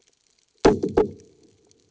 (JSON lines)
{"label": "anthrophony, bomb", "recorder": "HydroMoth"}